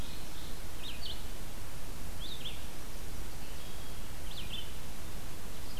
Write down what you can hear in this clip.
Ovenbird, Red-eyed Vireo, Wood Thrush